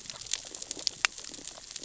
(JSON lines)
{"label": "biophony, sea urchins (Echinidae)", "recorder": "SoundTrap 600 or HydroMoth"}